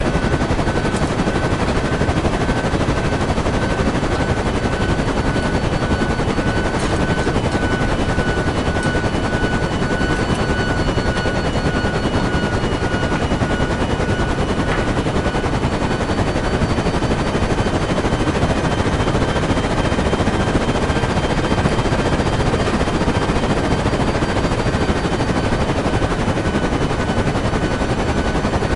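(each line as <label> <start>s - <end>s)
Slightly muffled sound of rotating helicopter blades. 0.0s - 28.8s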